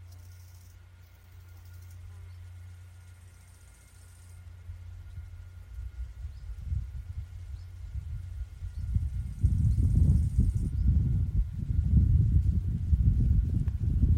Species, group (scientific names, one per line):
Chorthippus biguttulus
Orthoptera